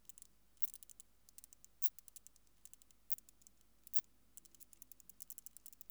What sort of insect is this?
orthopteran